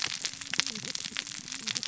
{"label": "biophony, cascading saw", "recorder": "SoundTrap 600 or HydroMoth"}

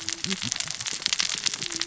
{"label": "biophony, cascading saw", "recorder": "SoundTrap 600 or HydroMoth"}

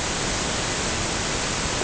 {"label": "ambient", "recorder": "HydroMoth"}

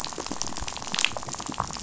{"label": "biophony, rattle", "recorder": "SoundTrap 500"}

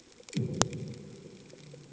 {"label": "anthrophony, bomb", "recorder": "HydroMoth"}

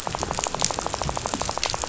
{"label": "biophony, rattle", "recorder": "SoundTrap 500"}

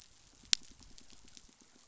{"label": "biophony, pulse", "recorder": "SoundTrap 500"}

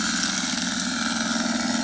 {"label": "anthrophony, boat engine", "recorder": "HydroMoth"}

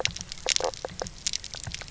{"label": "biophony, knock croak", "recorder": "SoundTrap 300"}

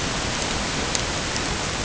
{"label": "ambient", "recorder": "HydroMoth"}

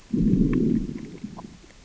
{"label": "biophony, growl", "recorder": "SoundTrap 600 or HydroMoth"}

